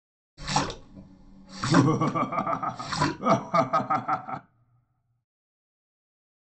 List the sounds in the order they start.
splash, laughter